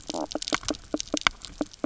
{"label": "biophony, knock croak", "recorder": "SoundTrap 300"}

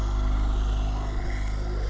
{"label": "anthrophony, boat engine", "recorder": "SoundTrap 300"}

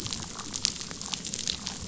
{"label": "biophony, damselfish", "recorder": "SoundTrap 500"}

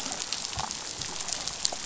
{"label": "biophony, damselfish", "recorder": "SoundTrap 500"}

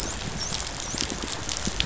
{"label": "biophony, dolphin", "recorder": "SoundTrap 500"}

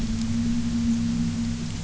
{"label": "anthrophony, boat engine", "recorder": "SoundTrap 300"}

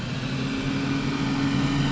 {"label": "anthrophony, boat engine", "recorder": "SoundTrap 500"}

